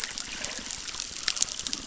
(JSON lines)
{"label": "biophony, crackle", "recorder": "SoundTrap 600"}